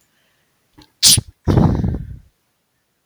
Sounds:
Sneeze